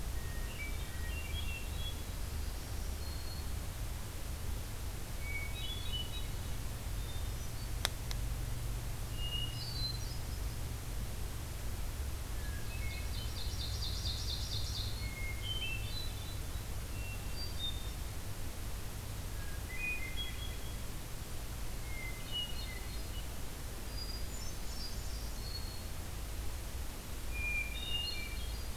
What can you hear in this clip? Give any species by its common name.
Hermit Thrush, Black-throated Green Warbler, Ovenbird